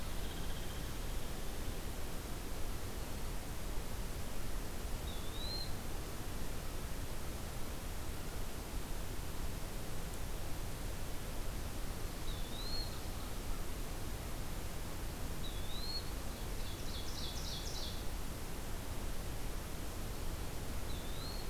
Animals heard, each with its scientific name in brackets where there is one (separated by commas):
Ovenbird (Seiurus aurocapilla), American Crow (Corvus brachyrhynchos), Hairy Woodpecker (Dryobates villosus), Eastern Wood-Pewee (Contopus virens)